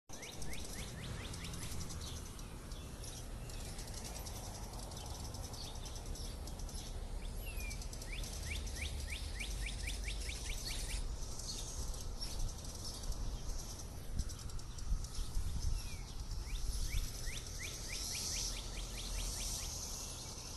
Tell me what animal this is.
Magicicada cassini, a cicada